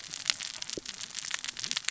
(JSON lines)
{"label": "biophony, cascading saw", "recorder": "SoundTrap 600 or HydroMoth"}